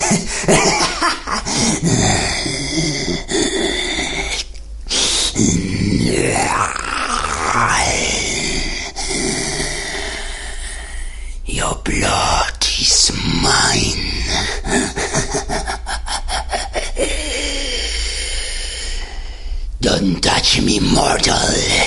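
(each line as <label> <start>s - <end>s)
A man laughs evilly. 0.1s - 1.8s
A man is growling. 1.8s - 4.5s
A man makes a sharp intake of breath through his teeth. 4.9s - 5.4s
A man is growling. 5.4s - 11.4s
A man speaks evilly. 11.5s - 14.6s
A man speaks with an evil tone. 11.5s - 14.6s
A man laughs evilly. 14.6s - 16.9s
A man is growling. 17.0s - 19.7s
A man speaks in an evil tone. 19.8s - 21.9s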